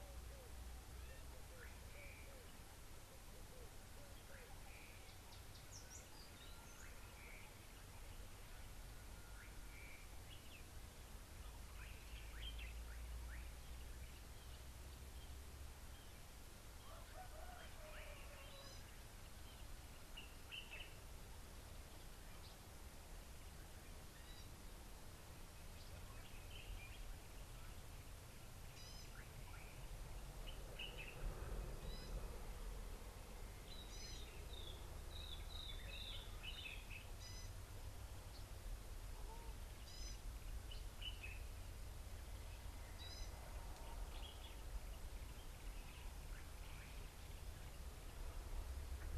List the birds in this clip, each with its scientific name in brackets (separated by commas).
White-browed Robin-Chat (Cossypha heuglini), Slate-colored Boubou (Laniarius funebris), Gray-backed Camaroptera (Camaroptera brevicaudata), Common Bulbul (Pycnonotus barbatus)